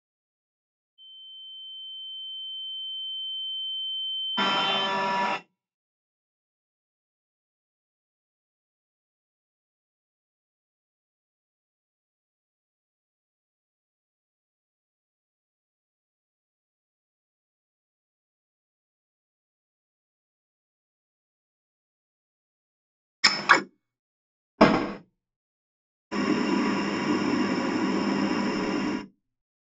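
At 0.97 seconds, a sine wave can be heard. Over it, at 4.37 seconds, you can hear a vacuum cleaner. After that, at 23.23 seconds, the sound of scissors comes through. Next, at 24.58 seconds, a window closes. Finally, at 26.11 seconds, boiling is audible.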